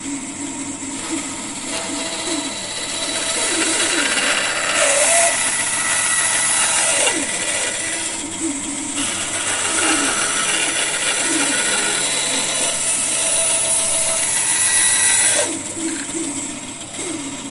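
An electric saw runs continuously. 0.0 - 17.5

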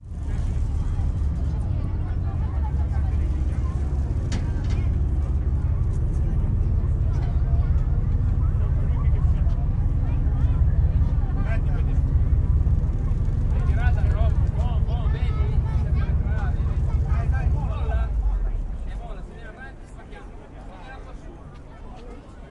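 A ship's diesel engine is humming deeply. 0.0 - 19.5
People are chattering. 0.0 - 22.5
A man is shouting commands in Italian. 13.3 - 20.7

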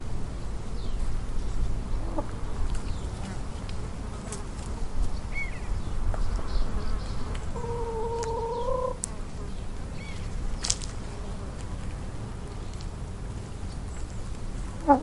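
Birds chirping in the distance. 0.6 - 15.0
A chicken clucks softly. 2.0 - 3.4
Flies buzzing constantly nearby. 3.2 - 15.0
A chicken is cooing softly. 6.6 - 9.4
Footsteps fading away. 10.1 - 12.7
A chicken clucking nearby. 14.7 - 15.0

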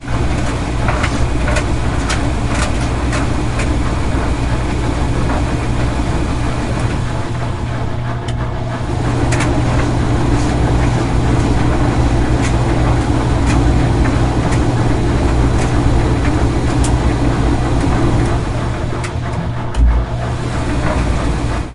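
The drum of a washing machine turns slowly. 0.0 - 7.1
A washing machine pump operates constantly in the background. 0.0 - 21.7
A washing machine pump is operating. 7.1 - 8.9
The drum of a washing machine turns slowly. 8.7 - 19.8
The drum of a washing machine accelerates. 19.7 - 21.7

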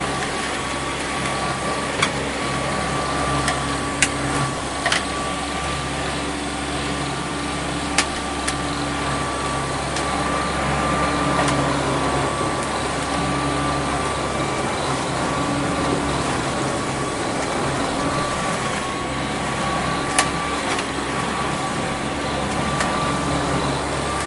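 An electric hover lawnmower emits a steady, high-pitched mechanical hum with slight fluctuations as it moves across a grassy lawn. 0.0 - 24.3

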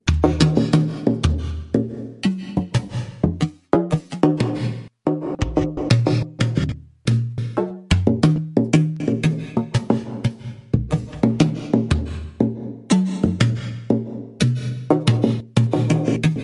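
Rhythmic deep sounds created by strumming a guitar. 0.0 - 16.4

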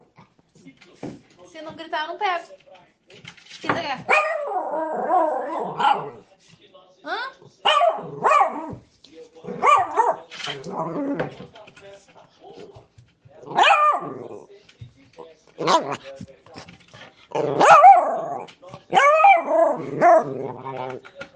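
People talking in the far distance. 0.0 - 21.4
A knocking sound. 1.0 - 1.2
A person is speaking brightly nearby. 1.5 - 2.5
A person is speaking brightly nearby. 3.6 - 4.0
A dog barks and growls. 4.1 - 6.2
A person is speaking brightly nearby. 7.1 - 7.3
A dog barks and growls. 7.6 - 8.8
A dog barks and growls. 9.5 - 11.5
A dog barks and growls. 13.5 - 14.4
A dog is growling. 15.6 - 16.0
A dog barks and growls. 17.3 - 21.0

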